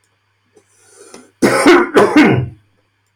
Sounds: Cough